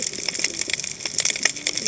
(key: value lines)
label: biophony, cascading saw
recorder: HydroMoth